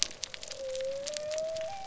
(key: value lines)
label: biophony
recorder: SoundTrap 300